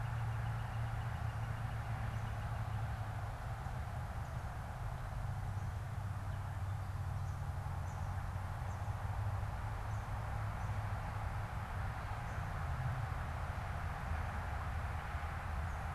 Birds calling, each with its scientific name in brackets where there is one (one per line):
Northern Flicker (Colaptes auratus)